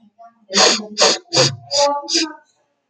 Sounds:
Sniff